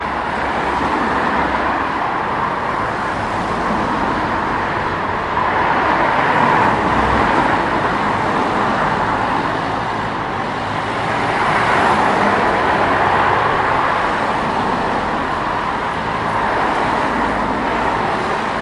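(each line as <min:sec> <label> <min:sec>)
0:00.0 Cars driving past in a city street. 0:18.6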